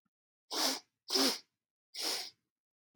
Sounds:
Sniff